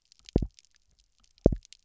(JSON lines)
{"label": "biophony, double pulse", "recorder": "SoundTrap 300"}